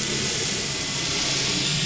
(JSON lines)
{"label": "anthrophony, boat engine", "recorder": "SoundTrap 500"}